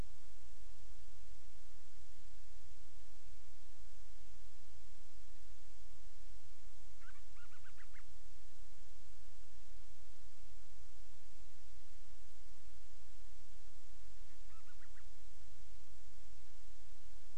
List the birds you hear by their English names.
Band-rumped Storm-Petrel